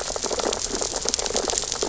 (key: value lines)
label: biophony, sea urchins (Echinidae)
recorder: SoundTrap 600 or HydroMoth